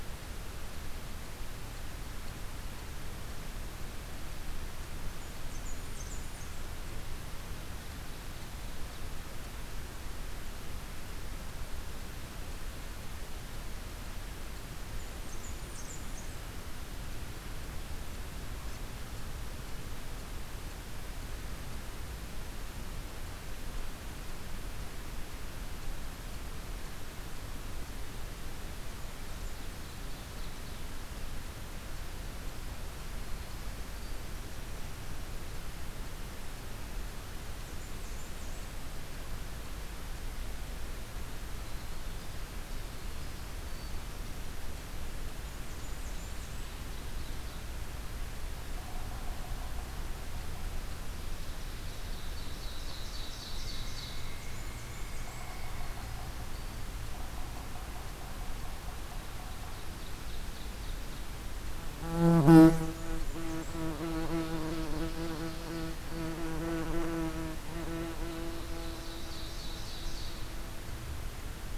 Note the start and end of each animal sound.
5.1s-6.8s: Blackburnian Warbler (Setophaga fusca)
14.9s-16.3s: Blackburnian Warbler (Setophaga fusca)
28.9s-29.9s: Blackburnian Warbler (Setophaga fusca)
29.2s-30.8s: Ovenbird (Seiurus aurocapilla)
37.2s-38.9s: Blackburnian Warbler (Setophaga fusca)
41.2s-44.9s: Winter Wren (Troglodytes hiemalis)
45.5s-46.9s: Blackburnian Warbler (Setophaga fusca)
45.7s-47.7s: Ovenbird (Seiurus aurocapilla)
51.3s-54.4s: Ovenbird (Seiurus aurocapilla)
53.0s-56.1s: Pileated Woodpecker (Dryocopus pileatus)
54.2s-55.5s: Blackburnian Warbler (Setophaga fusca)
55.2s-59.8s: Yellow-bellied Sapsucker (Sphyrapicus varius)
59.8s-61.3s: Blackburnian Warbler (Setophaga fusca)
62.8s-64.0s: Blackburnian Warbler (Setophaga fusca)
63.9s-66.5s: Ovenbird (Seiurus aurocapilla)
68.0s-70.5s: Ovenbird (Seiurus aurocapilla)

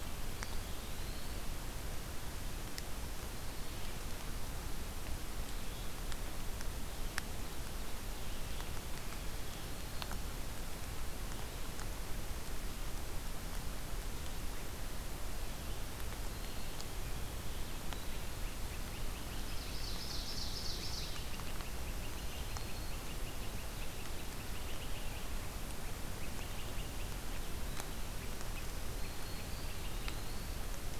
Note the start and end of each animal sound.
0.0s-1.8s: Eastern Wood-Pewee (Contopus virens)
15.8s-17.1s: Black-throated Green Warbler (Setophaga virens)
17.7s-30.6s: Great Crested Flycatcher (Myiarchus crinitus)
19.1s-21.6s: Ovenbird (Seiurus aurocapilla)
29.2s-31.0s: Eastern Wood-Pewee (Contopus virens)

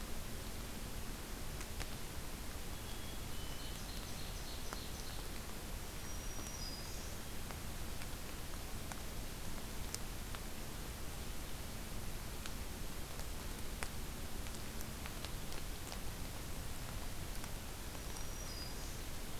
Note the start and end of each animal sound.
2.6s-3.8s: Black-capped Chickadee (Poecile atricapillus)
3.4s-5.3s: Ovenbird (Seiurus aurocapilla)
5.8s-7.2s: Black-throated Green Warbler (Setophaga virens)
18.0s-19.0s: Black-throated Green Warbler (Setophaga virens)

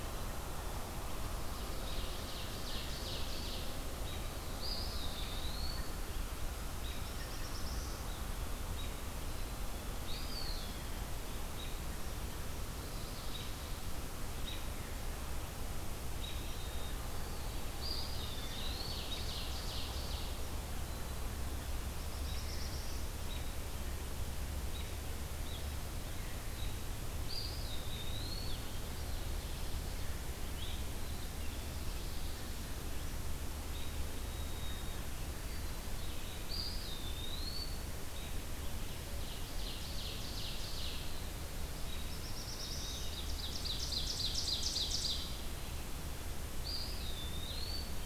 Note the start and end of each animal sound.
1.4s-3.7s: Black-capped Chickadee (Poecile atricapillus)
4.0s-14.7s: American Robin (Turdus migratorius)
4.5s-5.9s: Eastern Wood-Pewee (Contopus virens)
6.9s-8.0s: Black-throated Blue Warbler (Setophaga caerulescens)
9.9s-10.7s: Eastern Wood-Pewee (Contopus virens)
16.1s-20.3s: White-throated Sparrow (Zonotrichia albicollis)
17.8s-19.0s: Eastern Wood-Pewee (Contopus virens)
18.2s-20.4s: Ovenbird (Seiurus aurocapilla)
20.7s-21.9s: Black-capped Chickadee (Poecile atricapillus)
21.8s-23.2s: Black-throated Blue Warbler (Setophaga caerulescens)
22.2s-27.0s: American Robin (Turdus migratorius)
27.2s-28.7s: Eastern Wood-Pewee (Contopus virens)
30.9s-31.8s: Black-capped Chickadee (Poecile atricapillus)
34.1s-35.8s: White-throated Sparrow (Zonotrichia albicollis)
36.5s-37.8s: Eastern Wood-Pewee (Contopus virens)
38.1s-38.4s: American Robin (Turdus migratorius)
38.7s-41.3s: Ovenbird (Seiurus aurocapilla)
41.6s-43.0s: Black-throated Blue Warbler (Setophaga caerulescens)
42.8s-45.2s: Ovenbird (Seiurus aurocapilla)
46.7s-47.9s: Eastern Wood-Pewee (Contopus virens)

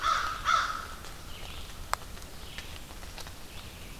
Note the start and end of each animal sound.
0.0s-0.9s: American Crow (Corvus brachyrhynchos)
0.0s-4.0s: Red-eyed Vireo (Vireo olivaceus)

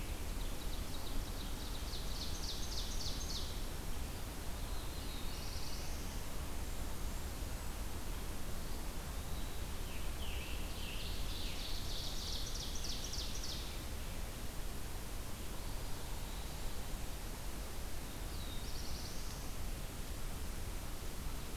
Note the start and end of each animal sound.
0.0s-3.8s: Ovenbird (Seiurus aurocapilla)
4.4s-6.4s: Black-throated Blue Warbler (Setophaga caerulescens)
6.3s-7.8s: Blackburnian Warbler (Setophaga fusca)
8.5s-9.7s: Eastern Wood-Pewee (Contopus virens)
9.6s-12.0s: Scarlet Tanager (Piranga olivacea)
10.6s-13.9s: Ovenbird (Seiurus aurocapilla)
15.4s-16.7s: Eastern Wood-Pewee (Contopus virens)
17.9s-19.6s: Black-throated Blue Warbler (Setophaga caerulescens)

